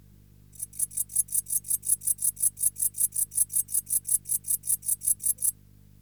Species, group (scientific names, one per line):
Pholidoptera stankoi
Orthoptera